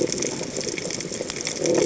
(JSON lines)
{"label": "biophony", "recorder": "HydroMoth"}